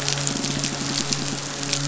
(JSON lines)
{"label": "biophony, midshipman", "recorder": "SoundTrap 500"}
{"label": "biophony", "recorder": "SoundTrap 500"}